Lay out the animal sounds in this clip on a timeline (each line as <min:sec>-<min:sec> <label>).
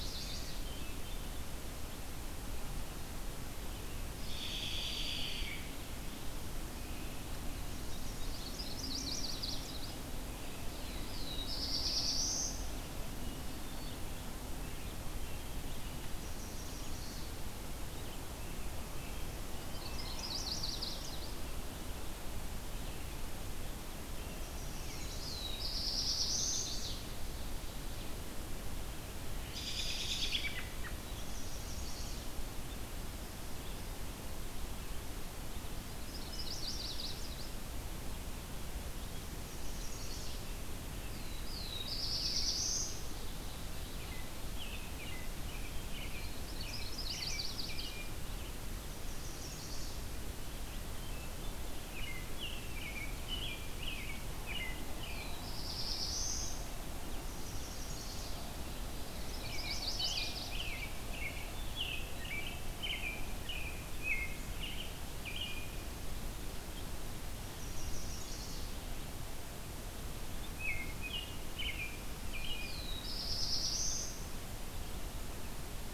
0:00.0-0:00.7 Chestnut-sided Warbler (Setophaga pensylvanica)
0:00.7-0:01.6 Hermit Thrush (Catharus guttatus)
0:04.1-0:05.6 American Robin (Turdus migratorius)
0:08.0-0:09.7 Yellow-rumped Warbler (Setophaga coronata)
0:10.6-0:12.7 Black-throated Blue Warbler (Setophaga caerulescens)
0:13.2-0:14.1 Hermit Thrush (Catharus guttatus)
0:16.1-0:17.4 Yellow-rumped Warbler (Setophaga coronata)
0:19.6-0:21.1 Yellow-rumped Warbler (Setophaga coronata)
0:24.2-0:25.5 Chestnut-sided Warbler (Setophaga pensylvanica)
0:24.9-0:26.7 Black-throated Blue Warbler (Setophaga caerulescens)
0:26.0-0:27.2 Chestnut-sided Warbler (Setophaga pensylvanica)
0:29.4-0:31.0 American Robin (Turdus migratorius)
0:31.1-0:32.4 Chestnut-sided Warbler (Setophaga pensylvanica)
0:35.8-0:37.5 Yellow-rumped Warbler (Setophaga coronata)
0:39.4-0:40.4 Chestnut-sided Warbler (Setophaga pensylvanica)
0:41.0-0:42.9 Black-throated Blue Warbler (Setophaga caerulescens)
0:44.5-0:48.1 American Robin (Turdus migratorius)
0:46.2-0:47.9 Yellow-rumped Warbler (Setophaga coronata)
0:48.6-0:50.0 Chestnut-sided Warbler (Setophaga pensylvanica)
0:51.7-0:55.4 American Robin (Turdus migratorius)
0:54.8-0:56.7 Black-throated Blue Warbler (Setophaga caerulescens)
0:57.1-0:58.3 Chestnut-sided Warbler (Setophaga pensylvanica)
0:59.1-1:00.6 Yellow-rumped Warbler (Setophaga coronata)
0:59.3-1:05.6 American Robin (Turdus migratorius)
1:07.4-1:08.8 Chestnut-sided Warbler (Setophaga pensylvanica)
1:10.4-1:12.8 American Robin (Turdus migratorius)
1:12.4-1:14.4 Black-throated Blue Warbler (Setophaga caerulescens)